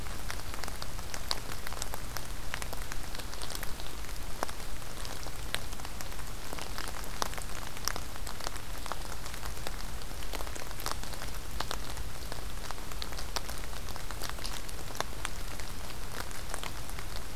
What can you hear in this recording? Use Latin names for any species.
forest ambience